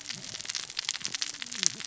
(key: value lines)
label: biophony, cascading saw
recorder: SoundTrap 600 or HydroMoth